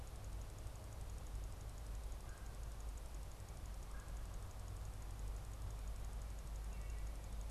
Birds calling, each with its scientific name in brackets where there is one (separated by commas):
Red-bellied Woodpecker (Melanerpes carolinus)